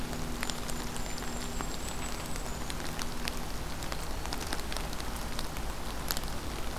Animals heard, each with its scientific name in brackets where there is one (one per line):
Golden-crowned Kinglet (Regulus satrapa)